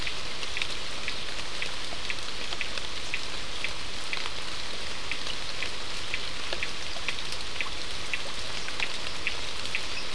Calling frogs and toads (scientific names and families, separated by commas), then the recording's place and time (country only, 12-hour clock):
Sphaenorhynchus surdus (Hylidae)
Brazil, 6:45pm